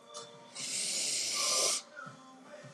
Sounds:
Sniff